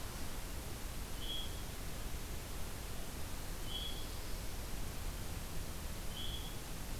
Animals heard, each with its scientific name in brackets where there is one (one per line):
Veery (Catharus fuscescens)